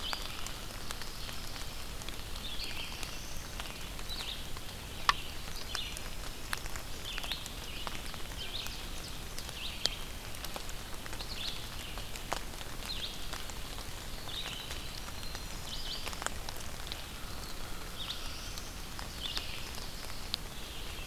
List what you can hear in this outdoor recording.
Red-eyed Vireo, Ovenbird, Black-throated Blue Warbler, Winter Wren, American Crow